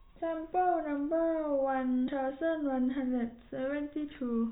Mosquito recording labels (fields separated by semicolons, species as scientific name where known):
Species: no mosquito; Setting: cup